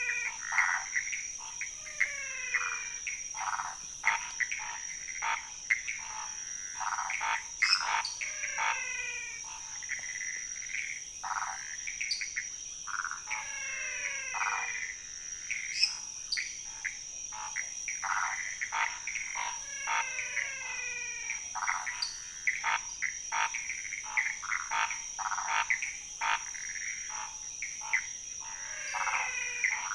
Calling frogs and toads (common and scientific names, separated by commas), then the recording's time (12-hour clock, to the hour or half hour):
Scinax fuscovarius, Pithecopus azureus, waxy monkey tree frog (Phyllomedusa sauvagii), menwig frog (Physalaemus albonotatus), lesser tree frog (Dendropsophus minutus), dwarf tree frog (Dendropsophus nanus)
~2am